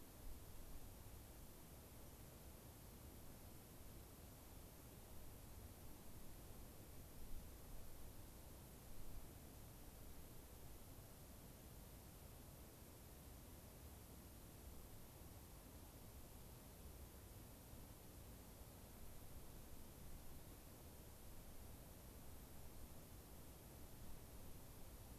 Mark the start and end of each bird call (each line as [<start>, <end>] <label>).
[2.06, 2.16] unidentified bird